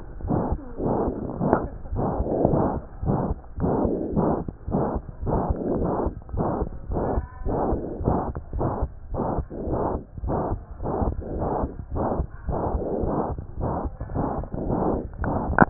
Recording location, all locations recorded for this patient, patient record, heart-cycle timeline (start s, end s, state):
pulmonary valve (PV)
aortic valve (AV)+pulmonary valve (PV)+tricuspid valve (TV)+mitral valve (MV)
#Age: Child
#Sex: Male
#Height: 99.0 cm
#Weight: 16.7 kg
#Pregnancy status: False
#Murmur: Present
#Murmur locations: aortic valve (AV)+mitral valve (MV)+pulmonary valve (PV)+tricuspid valve (TV)
#Most audible location: pulmonary valve (PV)
#Systolic murmur timing: Holosystolic
#Systolic murmur shape: Plateau
#Systolic murmur grading: III/VI or higher
#Systolic murmur pitch: High
#Systolic murmur quality: Blowing
#Diastolic murmur timing: nan
#Diastolic murmur shape: nan
#Diastolic murmur grading: nan
#Diastolic murmur pitch: nan
#Diastolic murmur quality: nan
#Outcome: Abnormal
#Campaign: 2015 screening campaign
0.24	0.33	S1
0.33	0.47	systole
0.47	0.58	S2
0.58	0.78	diastole
0.78	0.88	S1
0.88	1.04	systole
1.04	1.14	S2
1.14	1.38	diastole
1.38	1.48	S1
1.48	1.63	systole
1.63	1.72	S2
1.72	1.93	diastole
1.93	2.03	S1
2.03	2.19	systole
2.19	2.28	S2
2.28	2.49	diastole
2.49	2.57	S1
2.57	2.72	systole
2.72	2.82	S2
2.82	3.01	diastole
3.01	3.09	S1
3.09	3.29	systole
3.29	3.36	S2
3.36	3.56	diastole
3.56	3.67	S1
3.67	3.81	systole
3.81	3.90	S2
3.90	4.11	diastole
4.11	4.20	S1
4.20	4.37	systole
4.37	4.46	S2
4.46	4.67	diastole
4.67	4.75	S1
4.75	4.92	systole
4.92	5.02	S2
5.02	5.20	diastole
5.20	5.30	S1
5.30	5.47	systole
5.47	5.58	S2
5.58	5.79	diastole
5.79	5.89	S1
5.89	6.04	systole
6.04	6.13	S2
6.13	6.32	diastole
6.32	6.42	S1
6.42	6.59	systole
6.59	6.68	S2
6.68	6.89	diastole
6.89	6.98	S1
6.98	7.14	systole
7.14	7.24	S2
7.24	7.44	diastole
7.44	7.56	S1
7.56	7.70	systole
7.70	7.80	S2
7.80	7.99	diastole
7.99	8.05	S1
8.05	8.27	systole
8.27	8.33	S2
8.33	8.53	diastole
8.53	8.62	S1
8.62	8.82	systole
8.82	8.90	S2
8.90	9.12	diastole
9.12	9.18	S1
9.18	9.36	systole
9.36	9.46	S2
9.46	9.67	diastole
9.67	9.73	S1
9.73	9.92	systole
9.92	10.00	S2
10.00	10.23	diastole
10.23	10.32	S1
10.32	10.51	systole
10.51	10.58	S2
10.58	10.80	diastole